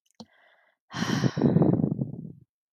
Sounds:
Sigh